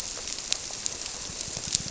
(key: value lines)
label: biophony
recorder: SoundTrap 300